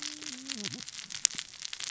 {"label": "biophony, cascading saw", "recorder": "SoundTrap 600 or HydroMoth"}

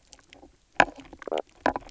{"label": "biophony, knock croak", "recorder": "SoundTrap 300"}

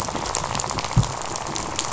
{"label": "biophony, rattle", "recorder": "SoundTrap 500"}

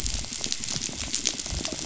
{"label": "biophony, rattle", "recorder": "SoundTrap 500"}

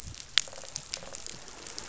{"label": "biophony, croak", "recorder": "SoundTrap 500"}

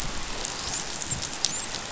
{"label": "biophony, dolphin", "recorder": "SoundTrap 500"}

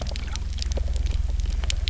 {"label": "anthrophony, boat engine", "recorder": "SoundTrap 300"}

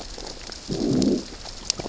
{"label": "biophony, growl", "recorder": "SoundTrap 600 or HydroMoth"}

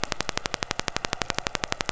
{"label": "anthrophony, boat engine", "recorder": "SoundTrap 500"}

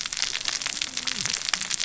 {"label": "biophony, cascading saw", "recorder": "SoundTrap 600 or HydroMoth"}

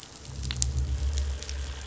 {"label": "anthrophony, boat engine", "recorder": "SoundTrap 500"}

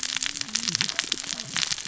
{"label": "biophony, cascading saw", "recorder": "SoundTrap 600 or HydroMoth"}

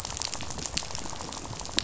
{"label": "biophony, rattle", "recorder": "SoundTrap 500"}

